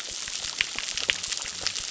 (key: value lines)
label: biophony
recorder: SoundTrap 600